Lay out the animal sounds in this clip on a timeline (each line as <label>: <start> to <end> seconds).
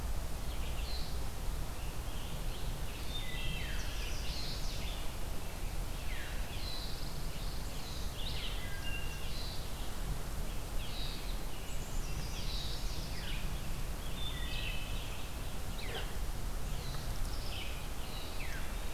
Red-eyed Vireo (Vireo olivaceus): 0.0 to 18.9 seconds
Wood Thrush (Hylocichla mustelina): 2.9 to 4.0 seconds
Veery (Catharus fuscescens): 3.5 to 3.9 seconds
Chestnut-sided Warbler (Setophaga pensylvanica): 3.7 to 4.9 seconds
Veery (Catharus fuscescens): 6.0 to 6.4 seconds
Pine Warbler (Setophaga pinus): 6.4 to 8.0 seconds
Wood Thrush (Hylocichla mustelina): 8.5 to 9.4 seconds
Chestnut-sided Warbler (Setophaga pensylvanica): 11.6 to 13.2 seconds
Wood Thrush (Hylocichla mustelina): 14.0 to 15.0 seconds
Veery (Catharus fuscescens): 15.8 to 16.1 seconds
Veery (Catharus fuscescens): 18.2 to 18.6 seconds